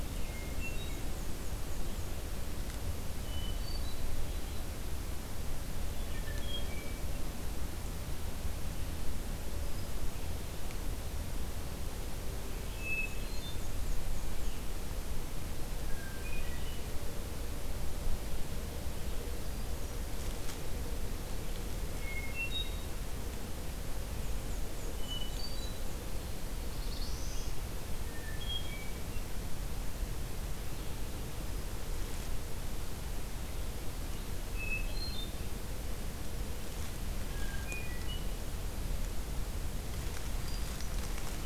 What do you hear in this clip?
Hermit Thrush, Black-and-white Warbler, Black-throated Blue Warbler